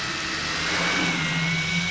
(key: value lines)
label: anthrophony, boat engine
recorder: SoundTrap 500